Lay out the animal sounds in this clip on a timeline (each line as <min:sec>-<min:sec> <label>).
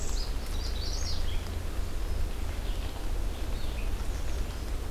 0:00.0-0:04.9 Red-eyed Vireo (Vireo olivaceus)
0:00.4-0:01.5 Magnolia Warbler (Setophaga magnolia)
0:03.8-0:04.7 American Redstart (Setophaga ruticilla)